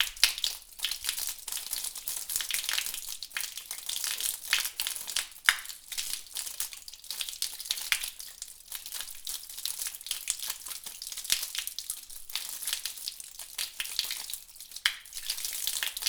Are dogs in the room?
no